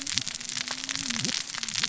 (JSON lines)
{"label": "biophony, cascading saw", "recorder": "SoundTrap 600 or HydroMoth"}